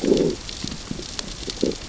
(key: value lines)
label: biophony, growl
recorder: SoundTrap 600 or HydroMoth